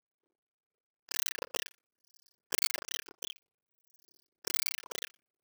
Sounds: Cough